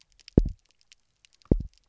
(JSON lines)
{"label": "biophony, double pulse", "recorder": "SoundTrap 300"}